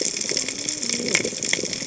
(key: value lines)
label: biophony, cascading saw
recorder: HydroMoth